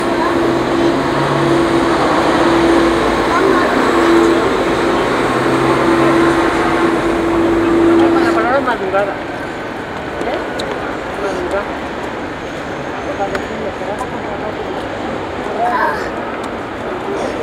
Is there a cat making noise?
no